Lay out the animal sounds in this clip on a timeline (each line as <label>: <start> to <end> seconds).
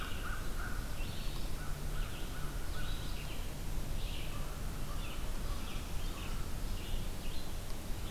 American Crow (Corvus brachyrhynchos): 0.0 to 3.2 seconds
Red-eyed Vireo (Vireo olivaceus): 0.0 to 8.1 seconds
American Crow (Corvus brachyrhynchos): 4.2 to 6.6 seconds